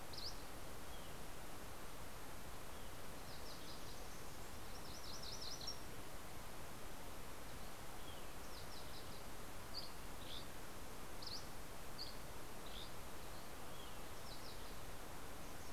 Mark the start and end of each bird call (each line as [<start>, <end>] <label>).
[0.00, 1.23] Dusky Flycatcher (Empidonax oberholseri)
[4.43, 5.93] MacGillivray's Warbler (Geothlypis tolmiei)
[8.73, 13.63] Dusky Flycatcher (Empidonax oberholseri)